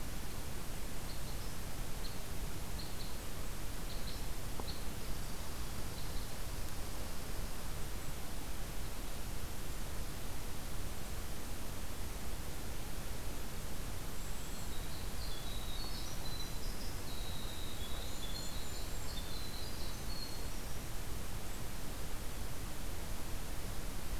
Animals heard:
Red Squirrel (Tamiasciurus hudsonicus), Winter Wren (Troglodytes hiemalis), Golden-crowned Kinglet (Regulus satrapa), Red Crossbill (Loxia curvirostra)

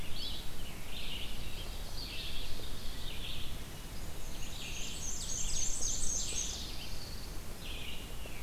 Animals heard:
Black-and-white Warbler (Mniotilta varia), Ovenbird (Seiurus aurocapilla), Pine Warbler (Setophaga pinus), Red-eyed Vireo (Vireo olivaceus)

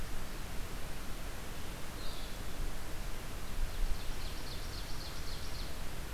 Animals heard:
Ovenbird (Seiurus aurocapilla), Blue-headed Vireo (Vireo solitarius)

